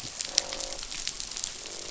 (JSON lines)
{"label": "biophony, croak", "recorder": "SoundTrap 500"}